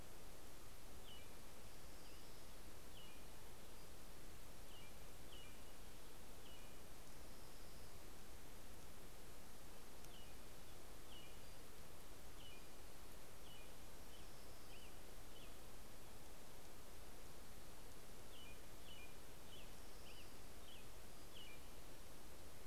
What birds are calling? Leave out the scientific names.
American Robin, Orange-crowned Warbler, Pacific-slope Flycatcher